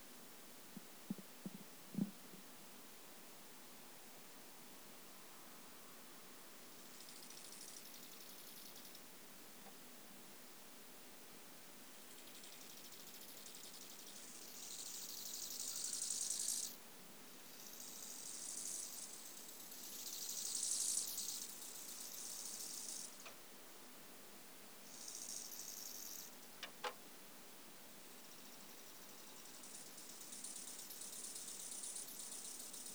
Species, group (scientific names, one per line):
Chorthippus biguttulus
Orthoptera